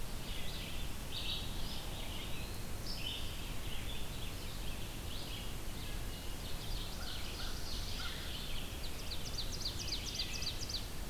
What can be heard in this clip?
Red-eyed Vireo, Eastern Wood-Pewee, Ovenbird